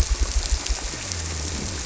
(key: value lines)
label: biophony
recorder: SoundTrap 300